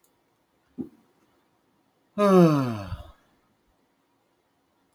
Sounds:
Sigh